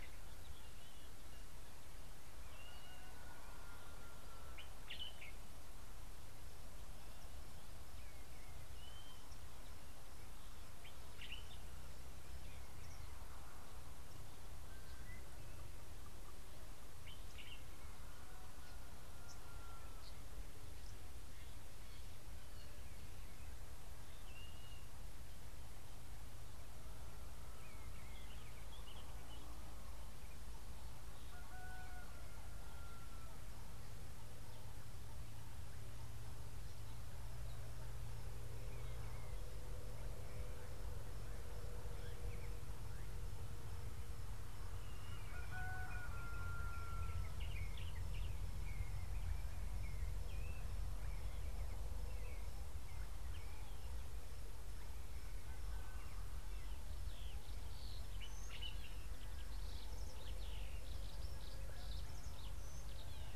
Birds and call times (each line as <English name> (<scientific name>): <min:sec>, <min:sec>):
Blue-naped Mousebird (Urocolius macrourus): 0:02.8
Common Bulbul (Pycnonotus barbatus): 0:05.0